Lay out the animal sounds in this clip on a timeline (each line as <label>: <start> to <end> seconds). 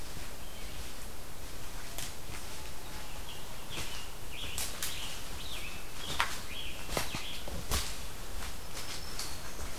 Scarlet Tanager (Piranga olivacea): 3.0 to 7.5 seconds
Black-throated Green Warbler (Setophaga virens): 8.4 to 9.8 seconds